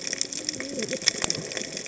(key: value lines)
label: biophony, cascading saw
recorder: HydroMoth